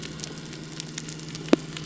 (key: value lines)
label: biophony
recorder: SoundTrap 300